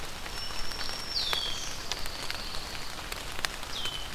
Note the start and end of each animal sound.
0.0s-1.8s: Black-throated Green Warbler (Setophaga virens)
1.1s-1.7s: Red-winged Blackbird (Agelaius phoeniceus)
1.6s-3.0s: Pine Warbler (Setophaga pinus)
3.6s-4.1s: Red-winged Blackbird (Agelaius phoeniceus)

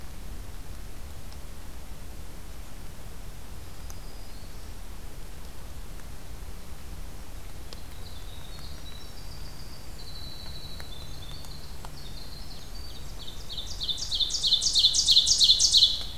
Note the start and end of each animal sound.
3.4s-4.8s: Black-throated Green Warbler (Setophaga virens)
7.5s-14.0s: Winter Wren (Troglodytes hiemalis)
12.5s-16.2s: Ovenbird (Seiurus aurocapilla)

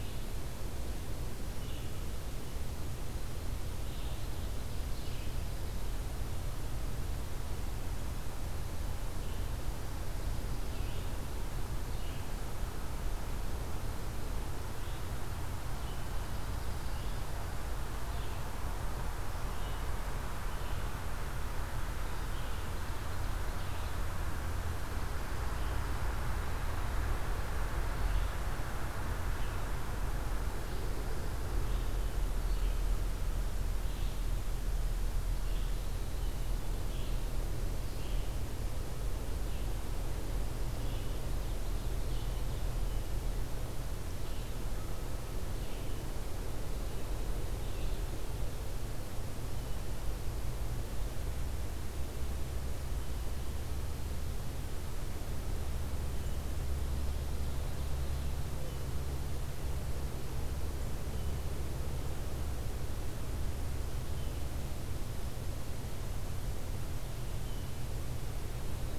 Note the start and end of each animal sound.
0.0s-44.5s: Red-eyed Vireo (Vireo olivaceus)
3.8s-5.8s: Ovenbird (Seiurus aurocapilla)
22.6s-24.1s: Ovenbird (Seiurus aurocapilla)
40.9s-43.1s: Ovenbird (Seiurus aurocapilla)
45.4s-48.2s: Red-eyed Vireo (Vireo olivaceus)
56.1s-56.6s: Blue Jay (Cyanocitta cristata)
56.8s-58.4s: Ovenbird (Seiurus aurocapilla)
58.5s-59.0s: Blue Jay (Cyanocitta cristata)
61.0s-61.4s: Blue Jay (Cyanocitta cristata)
64.0s-64.5s: Blue Jay (Cyanocitta cristata)
67.3s-67.9s: Blue Jay (Cyanocitta cristata)

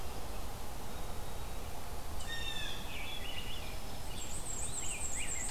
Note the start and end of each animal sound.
2.1s-2.8s: Blue Jay (Cyanocitta cristata)
2.8s-4.0s: Wood Thrush (Hylocichla mustelina)
4.0s-5.5s: Black-and-white Warbler (Mniotilta varia)
4.7s-5.5s: Rose-breasted Grosbeak (Pheucticus ludovicianus)

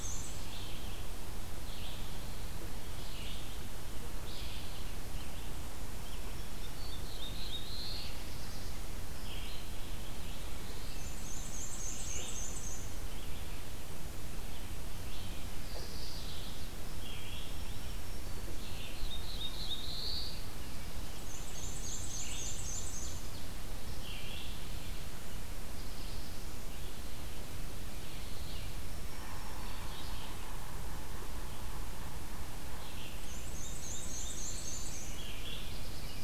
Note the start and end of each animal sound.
0.0s-22.5s: Red-eyed Vireo (Vireo olivaceus)
6.5s-8.9s: Black-throated Blue Warbler (Setophaga caerulescens)
10.7s-13.2s: Black-and-white Warbler (Mniotilta varia)
15.6s-16.7s: Mourning Warbler (Geothlypis philadelphia)
17.2s-18.8s: Black-throated Green Warbler (Setophaga virens)
18.6s-20.7s: Black-throated Blue Warbler (Setophaga caerulescens)
21.0s-23.4s: Black-and-white Warbler (Mniotilta varia)
21.3s-23.6s: Ovenbird (Seiurus aurocapilla)
23.8s-36.2s: Red-eyed Vireo (Vireo olivaceus)
25.5s-26.5s: Black-throated Blue Warbler (Setophaga caerulescens)
28.7s-30.0s: Black-throated Green Warbler (Setophaga virens)
29.1s-33.0s: Yellow-bellied Sapsucker (Sphyrapicus varius)
32.9s-35.3s: Black-and-white Warbler (Mniotilta varia)
33.4s-35.0s: Black-throated Blue Warbler (Setophaga caerulescens)
35.4s-36.2s: Black-throated Blue Warbler (Setophaga caerulescens)

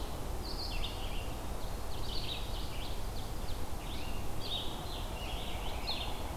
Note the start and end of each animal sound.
0.3s-6.4s: Red-eyed Vireo (Vireo olivaceus)
1.4s-3.6s: Ovenbird (Seiurus aurocapilla)
3.8s-6.2s: Scarlet Tanager (Piranga olivacea)

